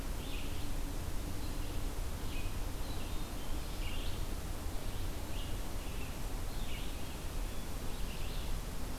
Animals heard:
Red-eyed Vireo (Vireo olivaceus)
Black-throated Green Warbler (Setophaga virens)

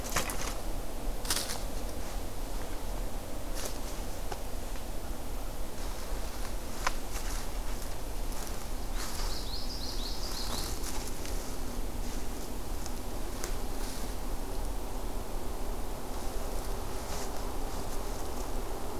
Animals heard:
Common Yellowthroat (Geothlypis trichas)

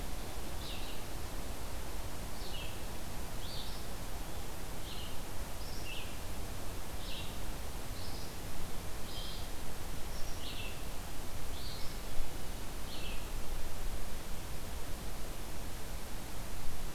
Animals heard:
Red-eyed Vireo (Vireo olivaceus)

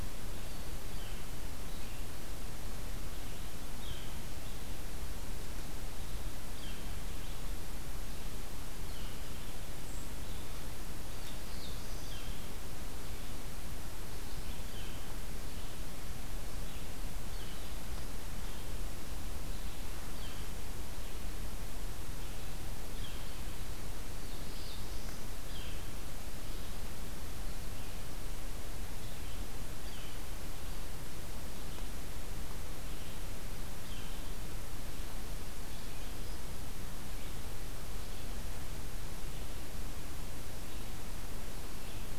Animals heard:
Black-capped Chickadee (Poecile atricapillus)
Black-throated Blue Warbler (Setophaga caerulescens)
Northern Flicker (Colaptes auratus)
Red-eyed Vireo (Vireo olivaceus)

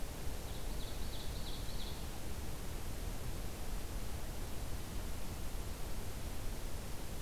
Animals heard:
Ovenbird (Seiurus aurocapilla)

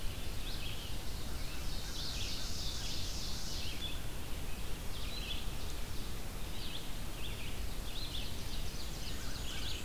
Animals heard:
American Crow (Corvus brachyrhynchos)
Ovenbird (Seiurus aurocapilla)
Black-and-white Warbler (Mniotilta varia)
Red-eyed Vireo (Vireo olivaceus)

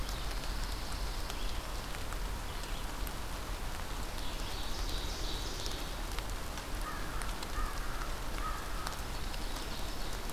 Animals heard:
Ovenbird (Seiurus aurocapilla)
Pine Warbler (Setophaga pinus)
American Crow (Corvus brachyrhynchos)
Red-eyed Vireo (Vireo olivaceus)

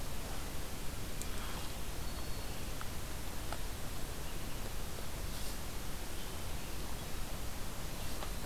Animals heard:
Black-throated Green Warbler (Setophaga virens)
Hermit Thrush (Catharus guttatus)

